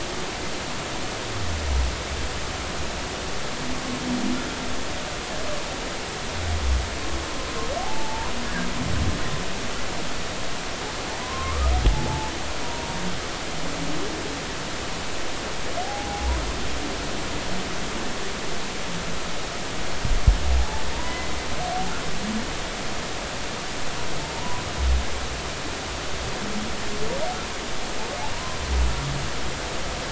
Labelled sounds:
7.8	8.3	humpback whale, 0.80 to 1.0 kHz
11.1	12.3	humpback whale, 0.80 to 1.3 kHz
12.6	12.9	humpback whale, 0.90 to 0.99 kHz
15.8	16.4	humpback whale, 0.80 to 1.1 kHz
20.6	21.3	humpback whale, 0.80 to 2.1 kHz
24.3	24.6	humpback whale, 0.90 to 1.1 kHz
28.3	28.6	humpback whale, 0.93 to 1.1 kHz

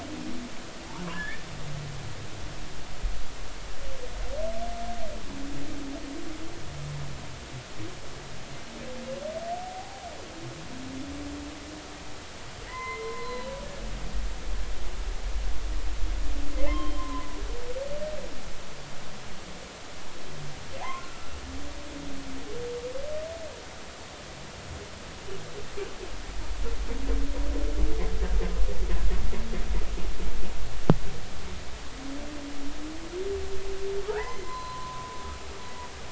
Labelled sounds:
1.1	1.4	humpback whale, 1.6 to 1.9 kHz
9.6	10.1	humpback whale, 0.80 to 0.93 kHz
12.7	13.5	humpback whale, 0.93 to 4.2 kHz
16.7	17.3	humpback whale, 0.96 to 3.2 kHz
21.0	21.3	humpback whale, 1.2 to 1.5 kHz
21.8	22.1	humpback whale, 0.80 to 1.1 kHz
34.1	35.2	humpback whale, 0.80 to 4.1 kHz

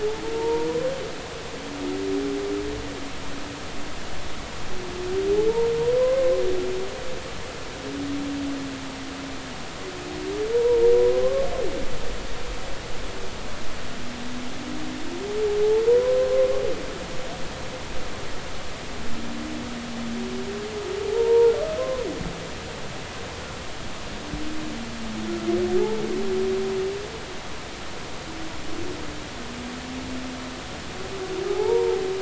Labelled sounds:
0.3	0.7	humpback whale, 0.86 to 0.99 kHz
5.9	6.3	humpback whale, 0.96 to 1.1 kHz
10.5	10.9	humpback whale, 0.90 to 1.0 kHz
11.2	11.5	humpback whale, 0.99 to 1.2 kHz
15.9	16.5	humpback whale, 0.90 to 1.2 kHz
21.1	22.0	humpback whale, 0.80 to 1.1 kHz
31.5	32.0	humpback whale, 0.80 to 1.1 kHz

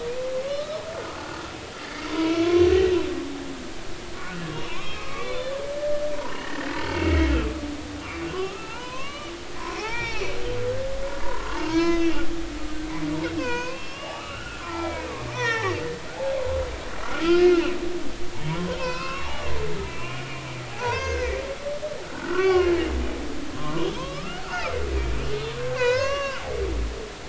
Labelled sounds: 0.4	1.5	humpback whale, 1.1 to 1.5 kHz
1.8	2.9	humpback whale, 0.93 to 4.6 kHz
4.2	5.6	humpback whale, 0.90 to 4.2 kHz
6.1	7.2	humpback whale, 0.83 to 3.1 kHz
8.3	9.3	humpback whale, 0.83 to 3.0 kHz
9.8	10.4	humpback whale, 0.80 to 5.7 kHz
11.2	12.1	humpback whale, 0.86 to 6.1 kHz
13.3	15.8	humpback whale, 0.80 to 6.1 kHz
17.0	17.7	humpback whale, 1.3 to 5.2 kHz
18.4	19.5	humpback whale, 0.90 to 5.4 kHz
19.9	20.4	humpback whale, 2.3 to 2.9 kHz
20.7	21.4	humpback whale, 0.80 to 6.4 kHz
22.1	22.7	humpback whale, 0.99 to 3.0 kHz
23.5	24.7	humpback whale, 0.90 to 1.6 kHz
25.6	26.4	humpback whale, 0.90 to 6.5 kHz

